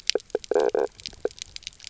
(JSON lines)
{"label": "biophony, knock croak", "recorder": "SoundTrap 300"}